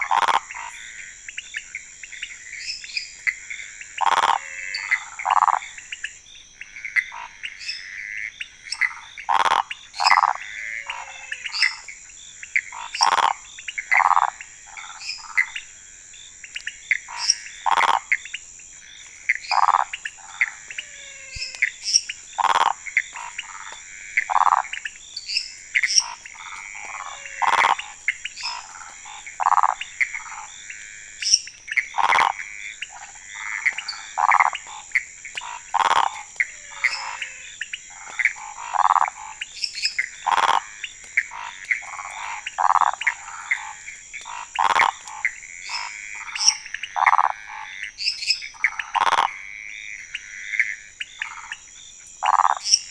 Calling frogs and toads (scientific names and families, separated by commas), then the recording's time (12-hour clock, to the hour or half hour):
Pithecopus azureus (Hylidae), Phyllomedusa sauvagii (Hylidae), Scinax fuscovarius (Hylidae), Leptodactylus podicipinus (Leptodactylidae), Dendropsophus minutus (Hylidae), Physalaemus albonotatus (Leptodactylidae), Dendropsophus nanus (Hylidae)
11:30pm